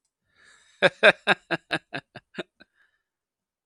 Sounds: Laughter